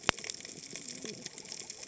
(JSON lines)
{"label": "biophony, cascading saw", "recorder": "HydroMoth"}